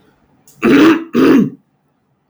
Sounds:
Throat clearing